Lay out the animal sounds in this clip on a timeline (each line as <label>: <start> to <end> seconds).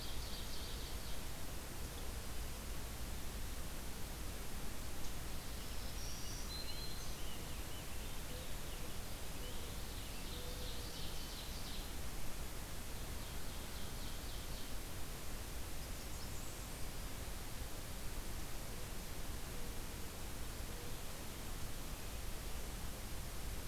Ovenbird (Seiurus aurocapilla): 0.0 to 1.3 seconds
Black-throated Green Warbler (Setophaga virens): 5.5 to 7.3 seconds
Rose-breasted Grosbeak (Pheucticus ludovicianus): 5.7 to 11.4 seconds
Mourning Dove (Zenaida macroura): 8.2 to 10.9 seconds
Ovenbird (Seiurus aurocapilla): 10.2 to 11.9 seconds
Ovenbird (Seiurus aurocapilla): 12.9 to 14.9 seconds
Blackburnian Warbler (Setophaga fusca): 15.6 to 16.9 seconds